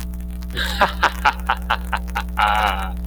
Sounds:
Laughter